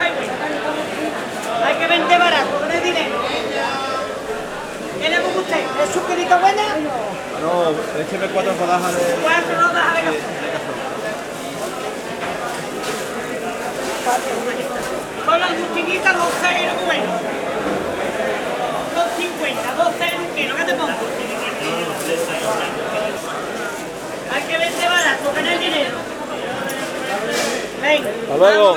Is a crowd of people speaking?
yes